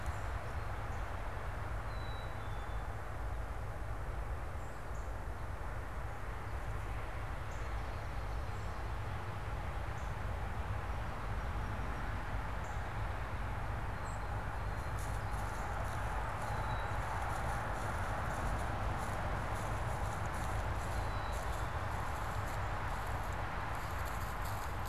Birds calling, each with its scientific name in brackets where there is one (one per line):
Song Sparrow (Melospiza melodia)
Black-capped Chickadee (Poecile atricapillus)
unidentified bird
Northern Cardinal (Cardinalis cardinalis)